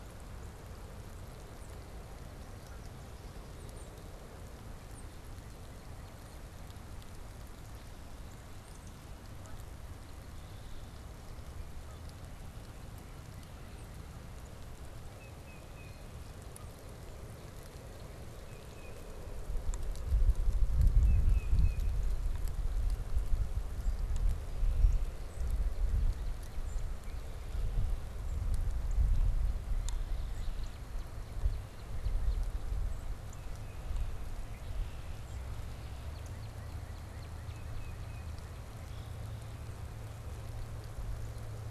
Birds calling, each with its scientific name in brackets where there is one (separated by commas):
Red-winged Blackbird (Agelaius phoeniceus), Tufted Titmouse (Baeolophus bicolor), Northern Cardinal (Cardinalis cardinalis)